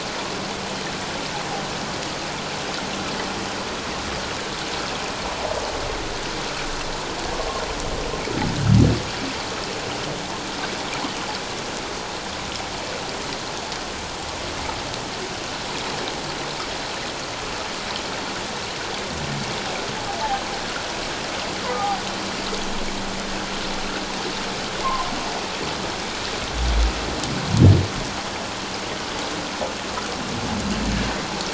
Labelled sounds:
21.7	22.0	humpback whale, 1.1 to 1.3 kHz

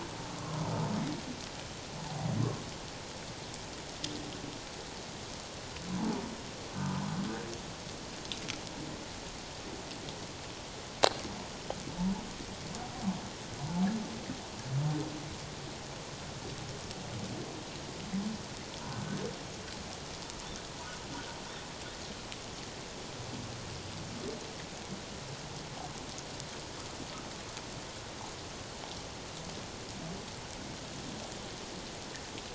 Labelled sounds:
5.9	6.2	humpback whale, 0.81 to 1.1 kHz
6.8	7.0	humpback whale, 1.2 to 1.3 kHz
13.6	13.8	humpback whale, 0.84 to 1.0 kHz
18.8	19.2	humpback whale, 1.5 to 1.6 kHz

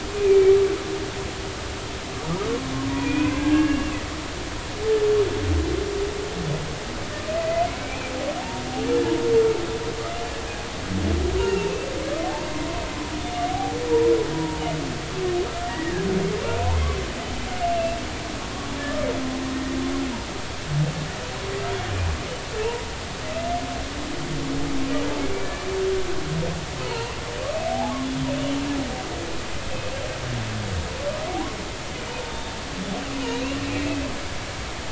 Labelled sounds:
0.1	0.6	humpback whale, 2.2 to 2.5 kHz
2.9	4.0	humpback whale, 1.4 to 2.8 kHz
7.4	8.1	humpback whale, 1.9 to 2.6 kHz
11.4	11.7	humpback whale, 2.7 to 2.9 kHz
13.5	14.6	humpback whale, 0.80 to 0.99 kHz
15.7	16.0	humpback whale, 1.6 to 2.0 kHz
17.7	18.0	humpback whale, 2.6 to 2.8 kHz
26.8	28.0	humpback whale, 0.80 to 3.1 kHz
33.3	34.0	humpback whale, 2.3 to 2.8 kHz

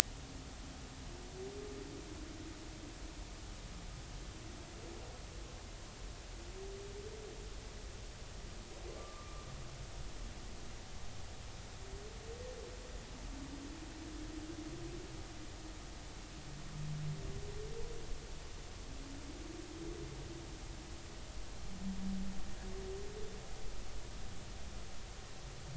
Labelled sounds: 9.0	9.5	humpback whale, 1.1 to 1.2 kHz

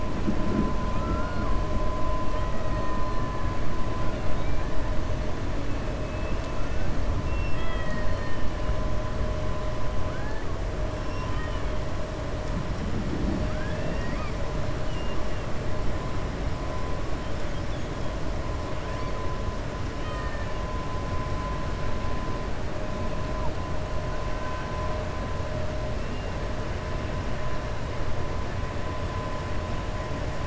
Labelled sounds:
2.2	3.0	killer whale, 1.2 to 3.2 kHz
4.1	4.7	killer whale, 1.6 to 3.9 kHz
6.0	6.5	killer whale, 2.6 to 2.9 kHz
7.2	8.4	killer whale, 1.3 to 5.0 kHz
11.0	11.7	killer whale, 1.2 to 3.2 kHz
19.9	20.6	killer whale, 1.2 to 3.8 kHz

